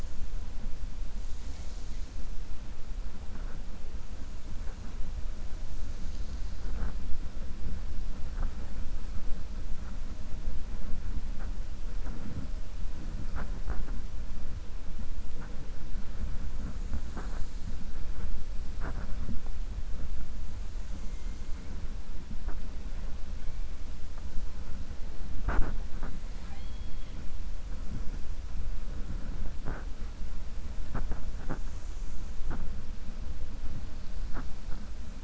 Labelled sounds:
26.3	27.2	killer whale, 0.80 to 4.5 kHz

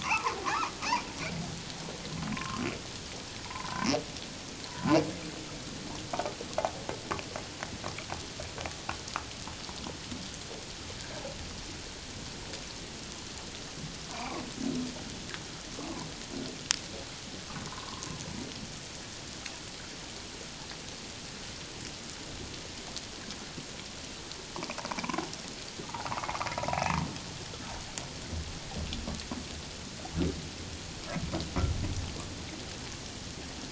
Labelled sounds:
0.0	0.7	humpback whale, 0.78 to 1.4 kHz
2.3	2.6	humpback whale, 0.94 to 1.4 kHz
3.5	3.7	humpback whale, 0.81 to 1.1 kHz
4.7	5.0	humpback whale, 0.78 to 1.1 kHz
14.1	14.4	humpback whale, 0.88 to 2.5 kHz
17.7	18.1	humpback whale, 0.88 to 1.2 kHz
25.8	26.3	humpback whale, 0.78 to 1.5 kHz
26.6	26.8	humpback whale, 0.91 to 1.0 kHz

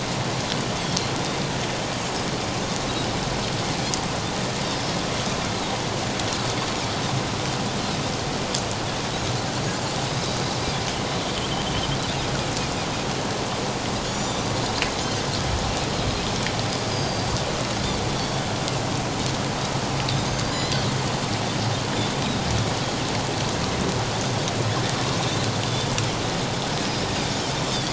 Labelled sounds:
4.7	5.0	Pacific white-sided dolphin, 4.9 to 5.2 kHz
11.2	11.5	Pacific white-sided dolphin, 2.9 to 3.4 kHz
14.0	14.5	Pacific white-sided dolphin, 5.5 to 7.2 kHz
16.9	18.4	Pacific white-sided dolphin, 3.3 to 6.6 kHz
20.3	20.8	Pacific white-sided dolphin, 3.9 to 5.2 kHz

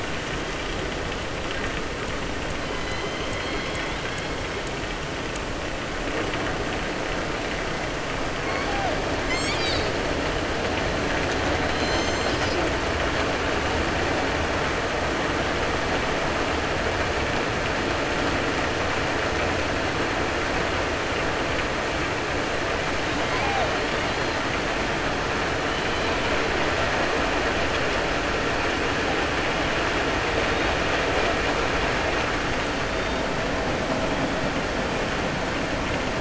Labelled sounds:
2.8	4.2	killer whale, southern resident, 1.6 to 5.2 kHz

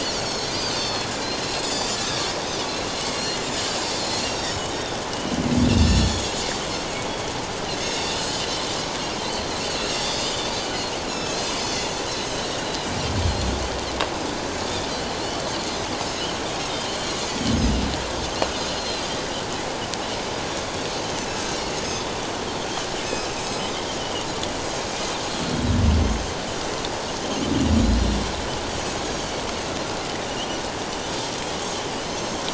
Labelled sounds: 0.0	2.0	Pacific white-sided dolphin, 3.3 to 7.1 kHz
2.8	3.4	Pacific white-sided dolphin, 2.1 to 5.8 kHz
3.8	5.4	Pacific white-sided dolphin, 2.8 to 7.4 kHz
5.7	6.4	Pacific white-sided dolphin, 3.2 to 7.5 kHz
7.7	8.5	Pacific white-sided dolphin, 3.4 to 7.1 kHz
9.7	10.4	Pacific white-sided dolphin, 2.6 to 6.3 kHz
11.1	12.0	Pacific white-sided dolphin, 2.5 to 7.0 kHz
12.3	12.6	Pacific white-sided dolphin, 3.6 to 5.7 kHz
13.2	13.5	Pacific white-sided dolphin, 4.1 to 4.3 kHz
15.6	17.2	Pacific white-sided dolphin, 2.9 to 6.4 kHz
18.8	19.0	Pacific white-sided dolphin, 4.0 to 4.3 kHz
21.2	22.0	Pacific white-sided dolphin, 5.1 to 6.5 kHz
23.4	24.3	Pacific white-sided dolphin, 2.8 to 7.8 kHz
25.3	26.3	Pacific white-sided dolphin, 4.2 to 6.5 kHz
27.6	27.9	Pacific white-sided dolphin, 5.6 to 5.8 kHz
32.0	32.4	Pacific white-sided dolphin, 4.1 to 7.6 kHz

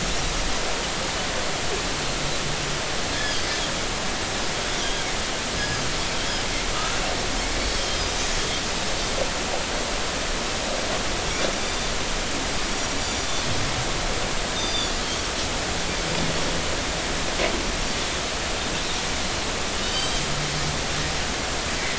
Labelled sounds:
3.1	3.4	Pacific white-sided dolphin, 1.6 to 5.3 kHz
6.7	7.0	Pacific white-sided dolphin, 1.2 to 1.4 kHz
13.0	13.3	Pacific white-sided dolphin, 5.8 to 7.1 kHz
14.6	15.0	Pacific white-sided dolphin, 3.3 to 6.1 kHz
19.7	20.2	Pacific white-sided dolphin, 2.9 to 4.8 kHz

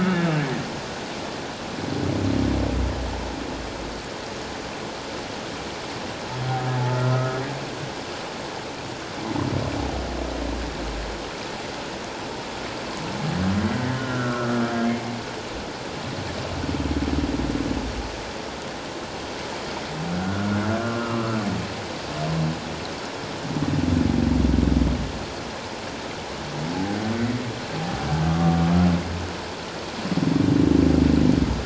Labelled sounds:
0.0	0.4	humpback whale, 2.1 to 2.9 kHz
7.1	7.4	humpback whale, 1.2 to 1.3 kHz
14.0	14.5	humpback whale, 1.2 to 1.5 kHz
20.2	21.4	humpback whale, 1.1 to 2.8 kHz
28.3	28.6	humpback whale, 1.1 to 1.2 kHz

